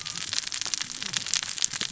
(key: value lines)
label: biophony, cascading saw
recorder: SoundTrap 600 or HydroMoth